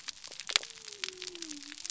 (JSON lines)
{"label": "biophony", "recorder": "SoundTrap 300"}